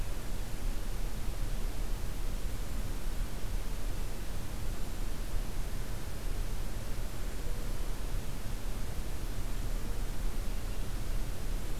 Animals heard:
forest ambience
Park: Acadia National Park